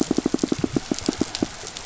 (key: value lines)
label: biophony, pulse
recorder: SoundTrap 500